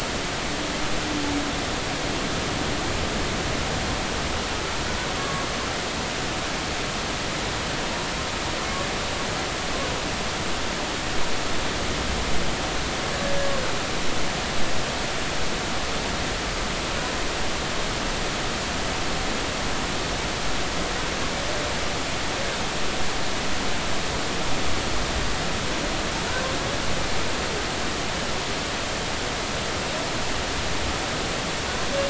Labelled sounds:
5.2	5.5	humpback whale, 1.1 to 1.2 kHz

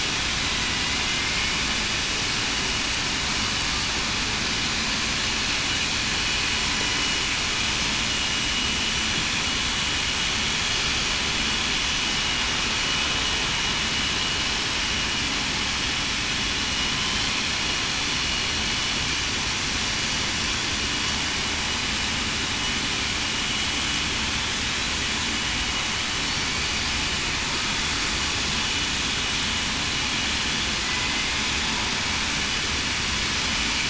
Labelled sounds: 16.9	17.3	killer whale, southern resident, 3.0 to 3.2 kHz
30.8	31.1	killer whale, southern resident, 2.0 to 2.1 kHz

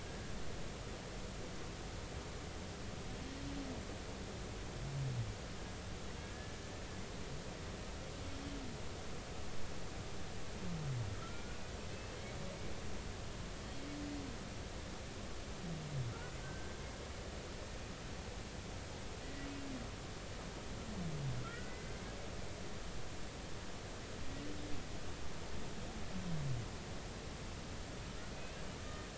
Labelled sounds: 7.2	7.6	humpback whale, 1.6 to 1.8 kHz
11.9	12.4	humpback whale, 1.2 to 2.7 kHz
16.4	16.7	humpback whale, 1.5 to 1.6 kHz
19.2	19.5	humpback whale, 1.9 to 2.0 kHz
21.4	21.9	humpback whale, 1.3 to 2.1 kHz
28.3	28.6	humpback whale, 2.5 to 2.8 kHz

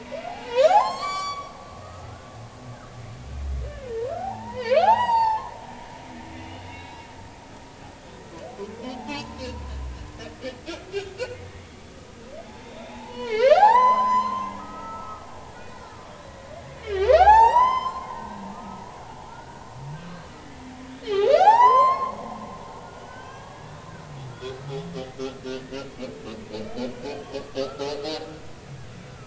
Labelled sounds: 0.0	1.5	humpback whale, 0.80 to 7.6 kHz
1.8	2.3	humpback whale, 1.2 to 1.5 kHz
3.9	5.5	humpback whale, 0.80 to 7.8 kHz
6.4	7.0	humpback whale, 2.1 to 4.0 kHz
8.8	9.2	humpback whale, 0.80 to 0.93 kHz
11.5	15.8	humpback whale, 0.80 to 8.0 kHz
16.8	18.8	humpback whale, 0.80 to 7.9 kHz
19.2	19.6	humpback whale, 1.2 to 1.6 kHz
20.3	20.6	humpback whale, 1.9 to 2.1 kHz
21.3	23.8	humpback whale, 0.80 to 7.4 kHz
24.3	24.6	humpback whale, 1.3 to 1.6 kHz
25.8	26.1	humpback whale, 2.1 to 2.4 kHz
26.9	27.3	humpback whale, 1.4 to 1.7 kHz
27.6	27.9	humpback whale, 1.2 to 1.4 kHz

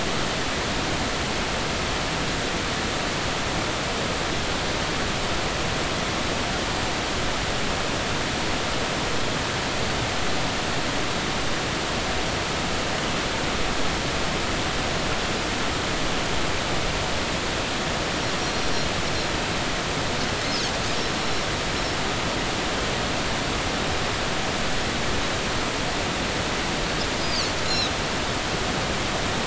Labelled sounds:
21.2	21.5	Pacific white-sided dolphin, 5.3 to 5.6 kHz
27.2	27.9	Pacific white-sided dolphin, 3.7 to 5.2 kHz

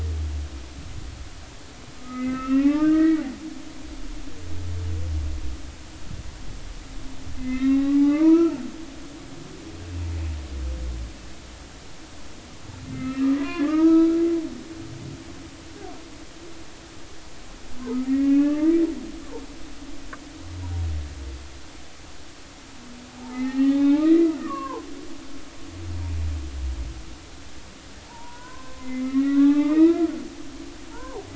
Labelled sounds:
2.0	3.2	humpback whale, 1.0 to 2.8 kHz
7.4	8.5	humpback whale, 0.80 to 3.9 kHz
12.9	14.2	humpback whale, 0.90 to 2.8 kHz
18.0	18.8	humpback whale, 1.1 to 2.9 kHz
23.1	24.8	humpback whale, 0.80 to 3.7 kHz
28.1	30.1	humpback whale, 0.80 to 3.8 kHz
30.9	31.3	humpback whale, 0.80 to 1.1 kHz

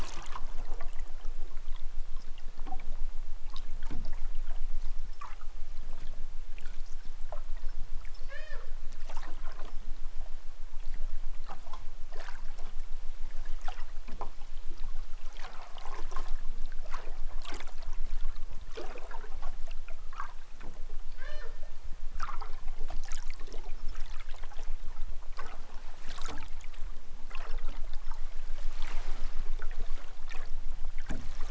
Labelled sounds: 8.1	8.7	killer whale, southern Alaska resident, 0.28 to 7.4 kHz
21.0	21.6	killer whale, southern Alaska resident, 0.18 to 6.9 kHz

